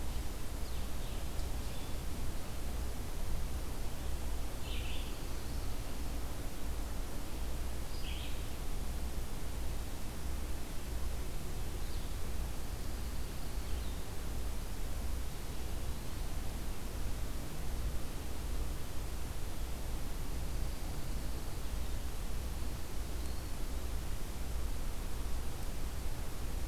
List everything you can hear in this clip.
Red-eyed Vireo, Pine Warbler